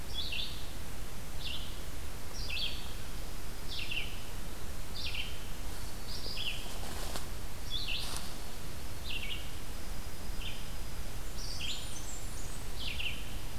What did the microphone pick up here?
Red-eyed Vireo, Dark-eyed Junco, Blackburnian Warbler